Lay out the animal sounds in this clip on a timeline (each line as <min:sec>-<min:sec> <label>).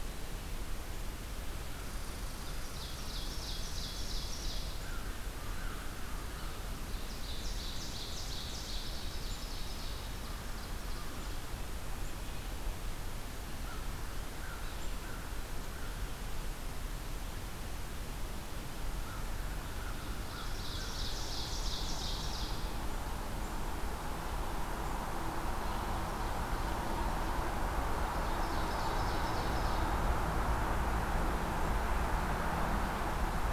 0:02.3-0:04.9 Ovenbird (Seiurus aurocapilla)
0:04.6-0:06.8 American Crow (Corvus brachyrhynchos)
0:06.8-0:11.4 Ovenbird (Seiurus aurocapilla)
0:13.3-0:16.2 American Crow (Corvus brachyrhynchos)
0:18.9-0:21.7 American Crow (Corvus brachyrhynchos)
0:20.1-0:22.7 Ovenbird (Seiurus aurocapilla)
0:28.0-0:30.2 Ovenbird (Seiurus aurocapilla)